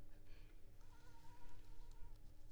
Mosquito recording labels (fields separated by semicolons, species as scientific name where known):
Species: Culex pipiens complex; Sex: female; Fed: unfed; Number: one; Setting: cup